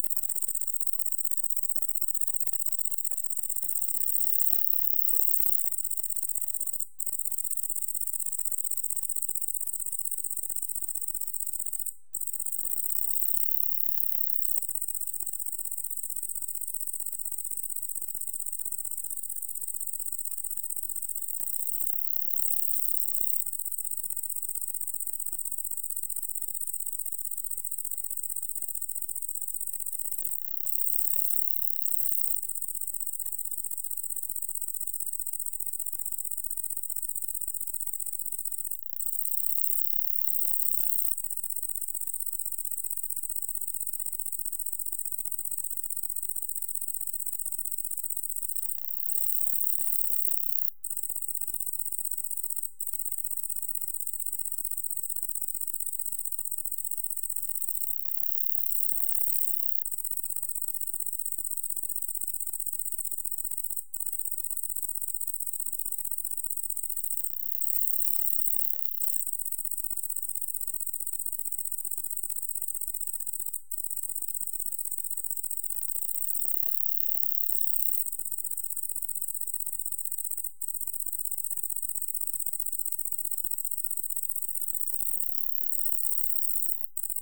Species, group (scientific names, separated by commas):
Tettigonia viridissima, Orthoptera